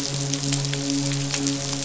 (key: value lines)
label: biophony, midshipman
recorder: SoundTrap 500